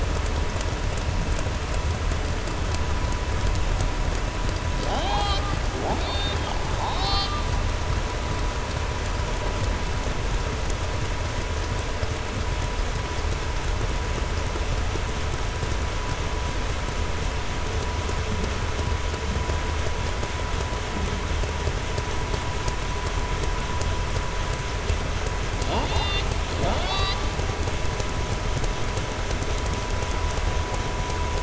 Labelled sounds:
6.7	7.4	killer whale, southern resident, 0.76 to 5.5 kHz

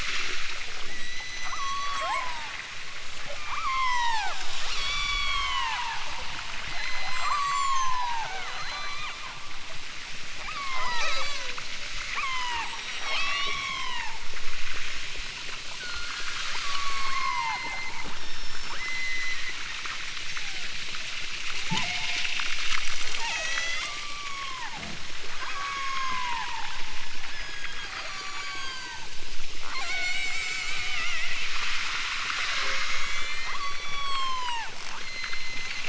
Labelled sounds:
0.8	2.6	killer whale, southern Alaska resident, 0.30 to 8.0 kHz
3.4	4.3	killer whale, southern Alaska resident, 0.46 to 8.0 kHz
4.7	6.0	killer whale, southern Alaska resident, 0.60 to 8.0 kHz
6.6	9.3	killer whale, southern Alaska resident, 0.28 to 8.0 kHz
10.3	11.6	killer whale, southern Alaska resident, 0.18 to 8.0 kHz
12.1	14.3	killer whale, southern Alaska resident, 0.37 to 8.0 kHz
15.8	16.3	killer whale, southern Alaska resident, 1.0 to 5.1 kHz
16.6	19.5	killer whale, southern Alaska resident, 0.37 to 8.0 kHz
20.3	20.8	killer whale, southern Alaska resident, 0.37 to 2.6 kHz
21.6	22.4	killer whale, southern Alaska resident, 0.28 to 1.6 kHz
23.2	24.8	killer whale, southern Alaska resident, 0.23 to 8.0 kHz
25.4	26.5	killer whale, southern Alaska resident, 0.32 to 7.2 kHz
27.2	29.2	killer whale, southern Alaska resident, 0.37 to 8.0 kHz
29.6	31.1	killer whale, southern Alaska resident, 0.37 to 8.0 kHz
32.6	35.8	killer whale, southern Alaska resident, 0.60 to 8.0 kHz

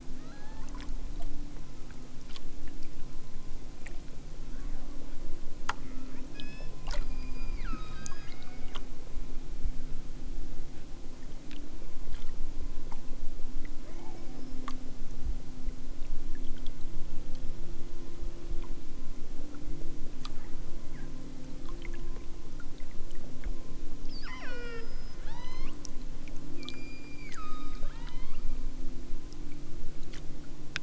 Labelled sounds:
0.2	0.8	killer whale, southern Alaska resident, 0.78 to 4.5 kHz
4.4	4.9	killer whale, southern Alaska resident, 0.92 to 2.5 kHz
5.8	8.7	killer whale, southern Alaska resident, 0.83 to 8.0 kHz
13.8	14.4	killer whale, southern Alaska resident, 1.4 to 3.3 kHz
24.0	25.8	killer whale, southern Alaska resident, 0.78 to 6.9 kHz
26.6	28.5	killer whale, southern Alaska resident, 0.64 to 7.5 kHz

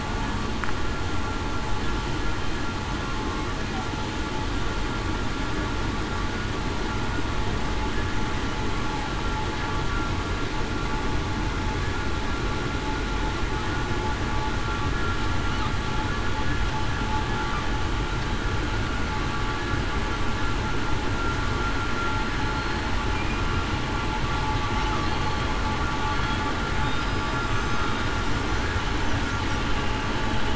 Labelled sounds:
27.4	27.7	killer whale, southern resident, 7.48 to 7.55 kHz

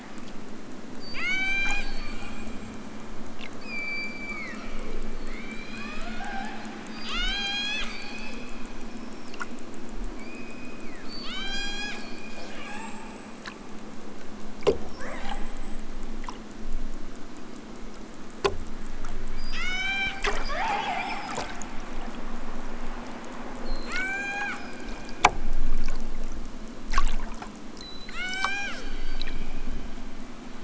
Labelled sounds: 1.0	2.2	killer whale, southern Alaska resident, 0.37 to 8.0 kHz
3.5	5.0	killer whale, southern Alaska resident, 0.73 to 7.8 kHz
5.2	8.6	killer whale, southern Alaska resident, 0.18 to 8.0 kHz
10.1	13.4	killer whale, southern Alaska resident, 0.37 to 8.0 kHz
14.8	15.9	killer whale, southern Alaska resident, 0.37 to 8.0 kHz
19.3	20.3	killer whale, southern Alaska resident, 0.60 to 8.0 kHz
23.6	24.8	killer whale, southern Alaska resident, 0.55 to 8.0 kHz
27.7	28.9	killer whale, southern Alaska resident, 0.41 to 8.0 kHz

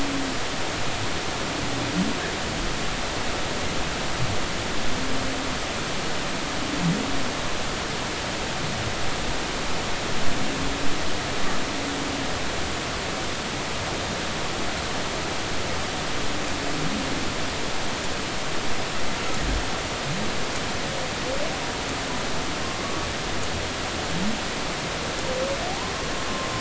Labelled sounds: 22.8	23.1	humpback whale, 1.1 to 1.2 kHz

